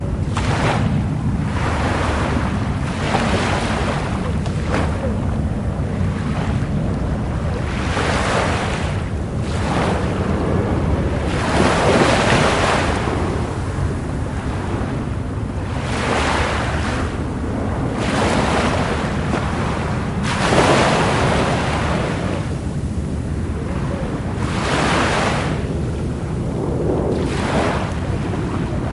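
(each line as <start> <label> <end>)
0.0 Waves crashing onto the shore. 28.9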